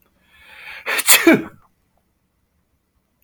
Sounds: Sneeze